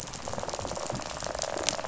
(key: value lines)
label: biophony, rattle response
recorder: SoundTrap 500